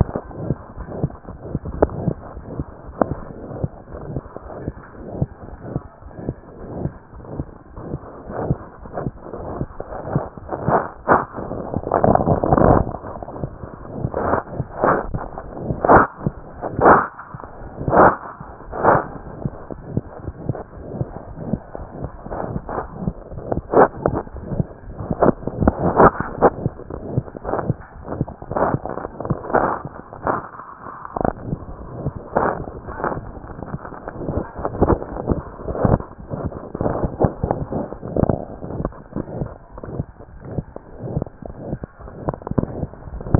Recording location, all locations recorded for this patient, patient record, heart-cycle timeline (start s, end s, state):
tricuspid valve (TV)
aortic valve (AV)+tricuspid valve (TV)+mitral valve (MV)
#Age: Child
#Sex: Male
#Height: 86.0 cm
#Weight: 10.2 kg
#Pregnancy status: False
#Murmur: Present
#Murmur locations: aortic valve (AV)+mitral valve (MV)+tricuspid valve (TV)
#Most audible location: aortic valve (AV)
#Systolic murmur timing: Holosystolic
#Systolic murmur shape: Crescendo
#Systolic murmur grading: I/VI
#Systolic murmur pitch: Medium
#Systolic murmur quality: Harsh
#Diastolic murmur timing: nan
#Diastolic murmur shape: nan
#Diastolic murmur grading: nan
#Diastolic murmur pitch: nan
#Diastolic murmur quality: nan
#Outcome: Abnormal
#Campaign: 2015 screening campaign
0.00	2.32	unannotated
2.32	2.43	S1
2.43	2.54	systole
2.54	2.65	S2
2.65	2.85	diastole
2.85	2.93	S1
2.93	3.09	systole
3.09	3.17	S2
3.17	3.41	diastole
3.41	3.49	S1
3.49	3.61	systole
3.61	3.69	S2
3.69	3.92	diastole
3.92	4.02	S1
4.02	4.13	systole
4.13	4.21	S2
4.21	4.41	diastole
4.41	4.50	S1
4.50	4.64	systole
4.64	4.73	S2
4.73	4.97	diastole
4.97	5.05	S1
5.05	5.18	systole
5.18	5.27	S2
5.27	5.49	diastole
5.49	5.60	S1
5.60	5.72	systole
5.72	5.81	S2
5.81	6.02	diastole
6.02	6.11	S1
6.11	6.24	systole
6.24	6.34	S2
6.34	6.58	diastole
6.58	6.69	S1
6.69	6.81	systole
6.81	6.91	S2
6.91	7.11	diastole
7.11	7.21	S1
7.21	7.35	systole
7.35	7.47	S2
7.47	7.72	diastole
7.72	7.83	S1
7.83	7.90	systole
7.90	7.99	S2
7.99	8.22	diastole
8.22	43.39	unannotated